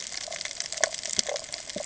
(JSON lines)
{"label": "ambient", "recorder": "HydroMoth"}